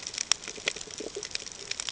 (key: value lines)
label: ambient
recorder: HydroMoth